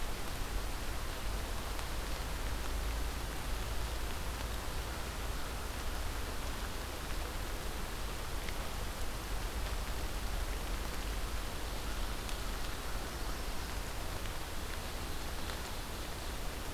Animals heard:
forest ambience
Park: Marsh-Billings-Rockefeller National Historical Park